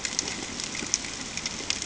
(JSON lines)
{"label": "ambient", "recorder": "HydroMoth"}